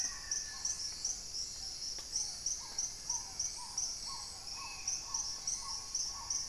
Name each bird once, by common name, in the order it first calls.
Black-faced Antthrush, Spot-winged Antshrike, Black-tailed Trogon, Hauxwell's Thrush, Paradise Tanager, Little Tinamou